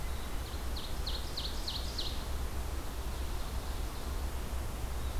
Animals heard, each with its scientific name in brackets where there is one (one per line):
Ovenbird (Seiurus aurocapilla)